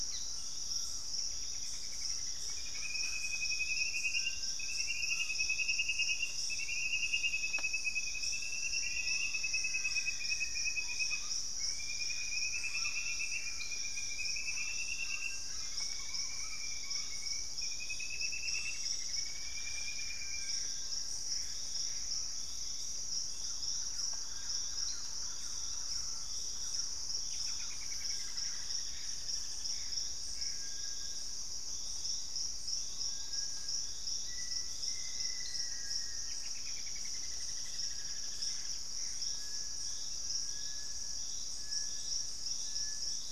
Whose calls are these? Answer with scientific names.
Campylorhynchus turdinus, Trogon collaris, Dendroplex picus, Crypturellus soui, Formicarius analis, Orthopsittaca manilatus, Cercomacra cinerascens, Querula purpurata